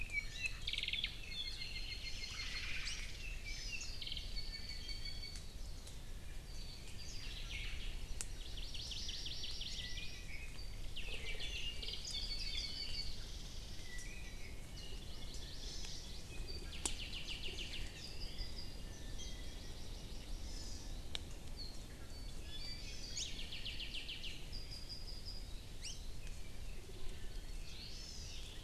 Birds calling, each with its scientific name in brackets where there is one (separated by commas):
Iiwi (Drepanis coccinea), Warbling White-eye (Zosterops japonicus), Hawaii Amakihi (Chlorodrepanis virens), Omao (Myadestes obscurus), Apapane (Himatione sanguinea), Chinese Hwamei (Garrulax canorus), Hawaii Creeper (Loxops mana)